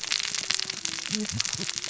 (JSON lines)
{"label": "biophony, cascading saw", "recorder": "SoundTrap 600 or HydroMoth"}